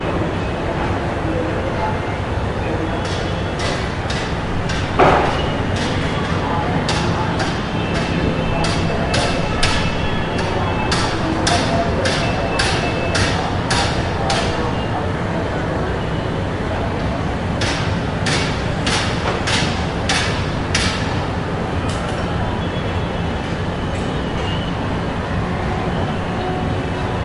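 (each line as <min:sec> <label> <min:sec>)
0:00.0 A car horn honks occasionally at different frequencies in the distance. 0:27.2
0:00.0 Delicate whispers in the background. 0:27.2
0:00.0 Humming noise of the city. 0:27.2
0:00.0 Loud metallic hammering in a uniform pattern outdoors. 0:27.2
0:00.0 Soft traffic noise is heard from a distance outdoors. 0:27.2
0:00.0 Soft traffic noise in the distance. 0:03.0
0:00.0 Soft, distant horn honks. 0:03.0
0:02.6 A car honks loudly in the distance at irregular intervals. 0:15.3
0:02.6 A hard object falls outdoors. 0:15.3
0:15.2 Horns honk occasionally in the background. 0:17.5
0:17.5 A horn honks in the distance intermittently. 0:24.1
0:17.5 The city hums. 0:24.1
0:24.1 Car horns honking in the distance. 0:27.2
0:24.1 Humming sound of the city. 0:27.2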